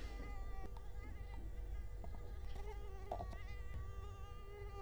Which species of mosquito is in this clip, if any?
Culex quinquefasciatus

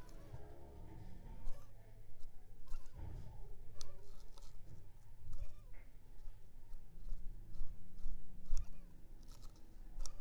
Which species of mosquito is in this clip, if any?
Culex pipiens complex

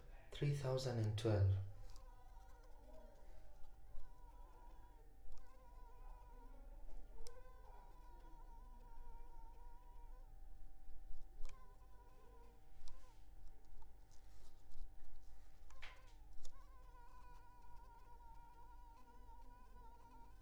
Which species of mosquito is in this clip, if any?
Culex pipiens complex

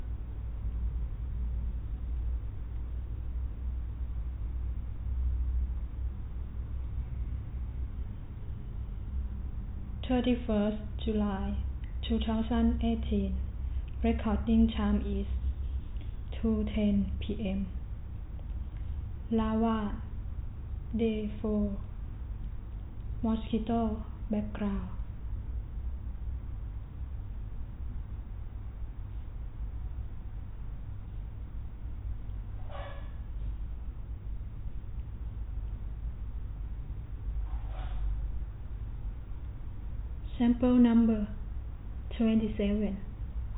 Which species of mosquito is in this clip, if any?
no mosquito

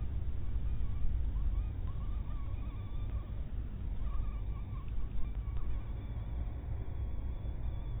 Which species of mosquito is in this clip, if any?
mosquito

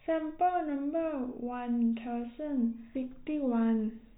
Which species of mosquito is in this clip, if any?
no mosquito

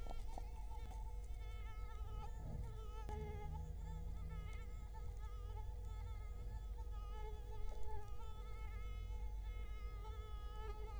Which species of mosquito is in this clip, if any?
Culex quinquefasciatus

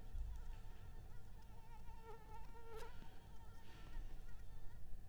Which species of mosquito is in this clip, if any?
Anopheles arabiensis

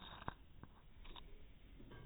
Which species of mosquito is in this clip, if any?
no mosquito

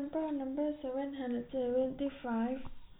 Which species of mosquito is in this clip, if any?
no mosquito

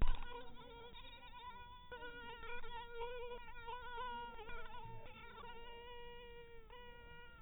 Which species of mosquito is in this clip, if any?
mosquito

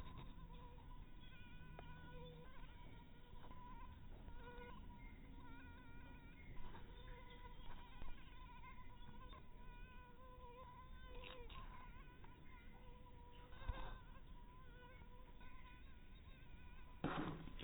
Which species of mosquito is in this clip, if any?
mosquito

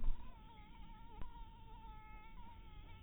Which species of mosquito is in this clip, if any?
mosquito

